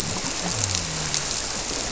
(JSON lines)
{"label": "biophony", "recorder": "SoundTrap 300"}